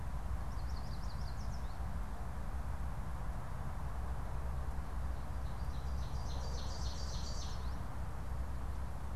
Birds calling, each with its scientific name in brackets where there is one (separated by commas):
Ovenbird (Seiurus aurocapilla), Yellow Warbler (Setophaga petechia)